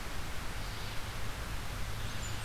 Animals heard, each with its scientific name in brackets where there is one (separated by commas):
Red-eyed Vireo (Vireo olivaceus)